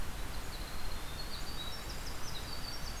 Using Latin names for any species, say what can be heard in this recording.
Troglodytes hiemalis